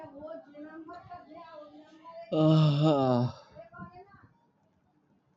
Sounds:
Sigh